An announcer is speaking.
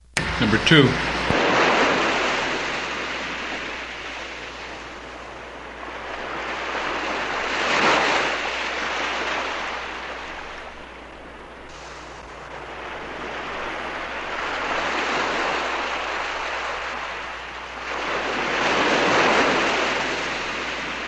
0.2 0.9

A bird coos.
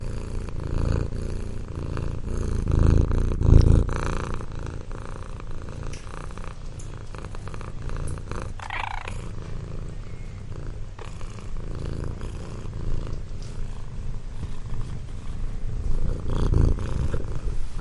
8.6 9.1

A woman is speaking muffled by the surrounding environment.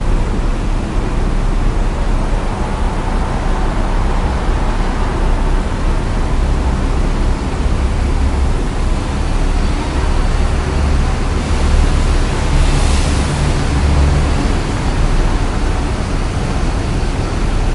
9.7 10.8

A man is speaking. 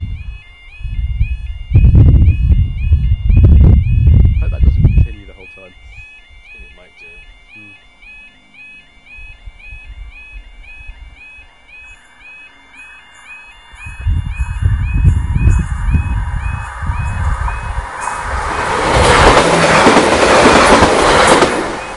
4.4 7.2

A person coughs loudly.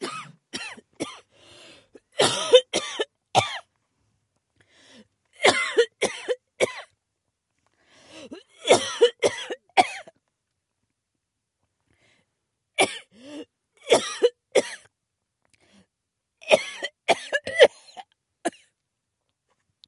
0.0 1.1, 2.1 3.7, 5.3 7.0, 8.5 10.2, 12.6 14.9, 16.3 18.6

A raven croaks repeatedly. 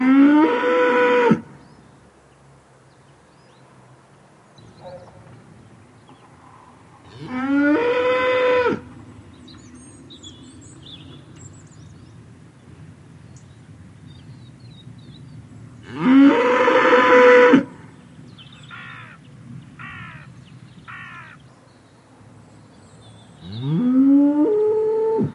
18.7 21.5

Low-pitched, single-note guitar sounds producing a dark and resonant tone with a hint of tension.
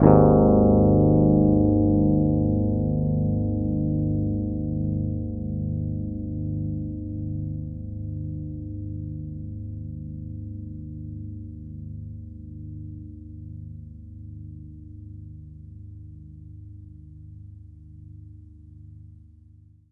0.0 9.3

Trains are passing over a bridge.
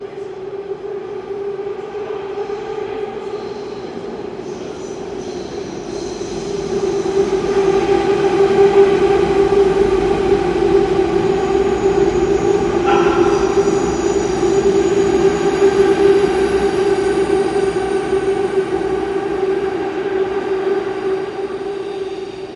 5.8 22.6

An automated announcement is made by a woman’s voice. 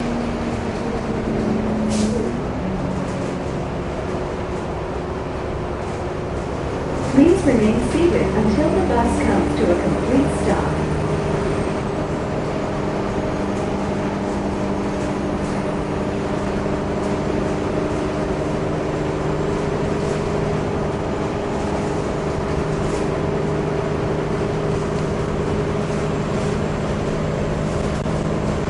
7.0 12.3

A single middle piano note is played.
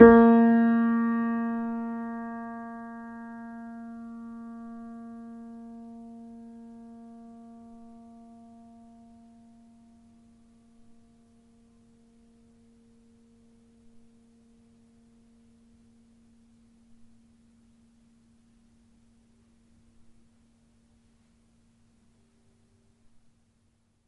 0.0 11.0

